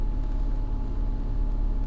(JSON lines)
{"label": "anthrophony, boat engine", "recorder": "SoundTrap 300"}